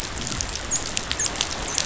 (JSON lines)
{"label": "biophony, dolphin", "recorder": "SoundTrap 500"}